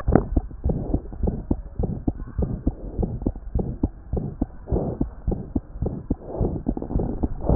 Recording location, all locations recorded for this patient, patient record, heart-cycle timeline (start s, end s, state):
pulmonary valve (PV)
pulmonary valve (PV)+mitral valve (MV)
#Age: Child
#Sex: Male
#Height: nan
#Weight: 10.1 kg
#Pregnancy status: False
#Murmur: Present
#Murmur locations: pulmonary valve (PV)
#Most audible location: pulmonary valve (PV)
#Systolic murmur timing: Early-systolic
#Systolic murmur shape: Decrescendo
#Systolic murmur grading: I/VI
#Systolic murmur pitch: Medium
#Systolic murmur quality: Harsh
#Diastolic murmur timing: nan
#Diastolic murmur shape: nan
#Diastolic murmur grading: nan
#Diastolic murmur pitch: nan
#Diastolic murmur quality: nan
#Outcome: Abnormal
#Campaign: 2014 screening campaign
0.00	0.66	unannotated
0.66	0.77	S1
0.77	0.90	systole
0.90	1.00	S2
1.00	1.22	diastole
1.22	1.34	S1
1.34	1.50	systole
1.50	1.60	S2
1.60	1.80	diastole
1.80	1.92	S1
1.92	2.06	systole
2.06	2.14	S2
2.14	2.38	diastole
2.38	2.50	S1
2.50	2.66	systole
2.66	2.74	S2
2.74	2.98	diastole
2.98	3.10	S1
3.10	3.25	systole
3.25	3.34	S2
3.34	3.56	diastole
3.56	3.68	S1
3.68	3.82	systole
3.82	3.90	S2
3.90	4.14	diastole
4.14	4.26	S1
4.26	4.40	systole
4.40	4.48	S2
4.48	4.72	diastole
4.72	4.85	S1
4.85	5.00	systole
5.00	5.10	S2
5.10	5.28	diastole
5.28	5.40	S1
5.40	5.54	systole
5.54	5.62	S2
5.62	5.82	diastole
5.82	5.94	S1
5.94	6.08	systole
6.08	6.16	S2
6.16	6.40	diastole
6.40	7.55	unannotated